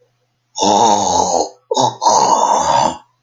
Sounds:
Throat clearing